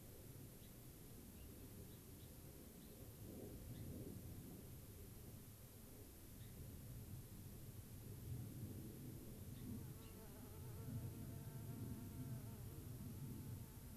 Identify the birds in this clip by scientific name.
Leucosticte tephrocotis